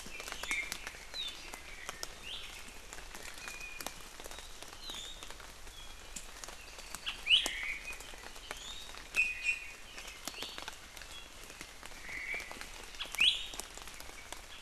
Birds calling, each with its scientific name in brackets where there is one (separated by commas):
Apapane (Himatione sanguinea), Omao (Myadestes obscurus), Iiwi (Drepanis coccinea)